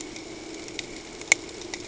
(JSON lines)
{"label": "ambient", "recorder": "HydroMoth"}